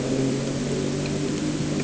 {"label": "anthrophony, boat engine", "recorder": "HydroMoth"}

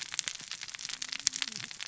{"label": "biophony, cascading saw", "recorder": "SoundTrap 600 or HydroMoth"}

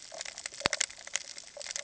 {"label": "ambient", "recorder": "HydroMoth"}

